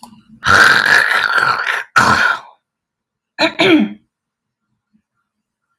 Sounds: Throat clearing